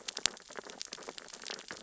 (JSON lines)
{"label": "biophony, sea urchins (Echinidae)", "recorder": "SoundTrap 600 or HydroMoth"}